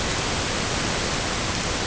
{"label": "ambient", "recorder": "HydroMoth"}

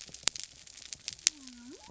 {"label": "biophony", "recorder": "SoundTrap 300"}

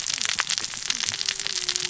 {"label": "biophony, cascading saw", "recorder": "SoundTrap 600 or HydroMoth"}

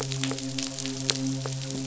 {"label": "biophony, midshipman", "recorder": "SoundTrap 500"}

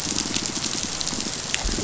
{"label": "biophony, growl", "recorder": "SoundTrap 500"}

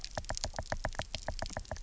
{"label": "biophony, knock", "recorder": "SoundTrap 300"}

